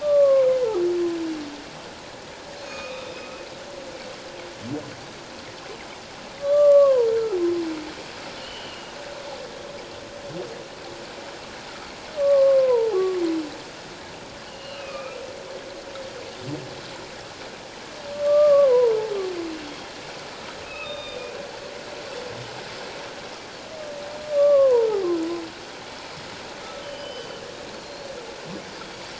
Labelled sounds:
0.0	0.5	humpback whale, 0.97 to 1.2 kHz
2.6	3.1	humpback whale, 1.1 to 6.6 kHz
6.4	7.4	humpback whale, 0.88 to 1.7 kHz
8.4	8.9	humpback whale, 2.8 to 3.2 kHz
12.2	13.0	humpback whale, 0.78 to 1.2 kHz
14.5	15.2	humpback whale, 1.1 to 4.3 kHz
18.1	19.0	humpback whale, 0.88 to 1.2 kHz
19.6	19.9	humpback whale, 3.1 to 3.4 kHz
20.6	21.2	humpback whale, 1.2 to 4.9 kHz
24.3	25.0	humpback whale, 0.88 to 1.4 kHz
26.8	27.4	humpback whale, 2.9 to 3.1 kHz
27.7	28.1	Pacific white-sided dolphin, 4.1 to 4.4 kHz

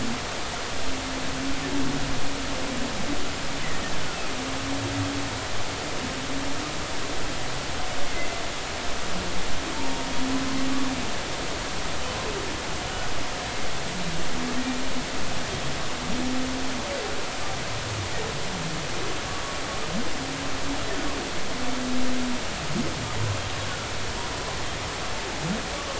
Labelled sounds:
8.0	8.3	humpback whale, 2.0 to 2.2 kHz
9.7	10.1	humpback whale, 0.86 to 0.96 kHz

